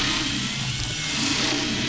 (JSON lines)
{"label": "anthrophony, boat engine", "recorder": "SoundTrap 500"}